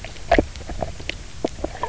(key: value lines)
label: biophony, knock croak
recorder: SoundTrap 300